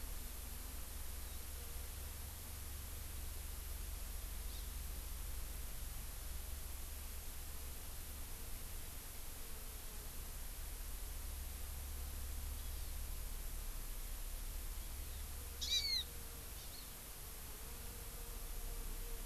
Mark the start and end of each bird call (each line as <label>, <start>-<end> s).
Hawaii Amakihi (Chlorodrepanis virens), 4.5-4.7 s
Hawaii Amakihi (Chlorodrepanis virens), 12.5-13.0 s
Hawaii Amakihi (Chlorodrepanis virens), 14.8-15.2 s
Hawaii Amakihi (Chlorodrepanis virens), 15.6-15.8 s